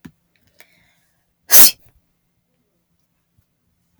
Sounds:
Sneeze